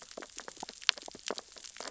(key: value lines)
label: biophony, sea urchins (Echinidae)
recorder: SoundTrap 600 or HydroMoth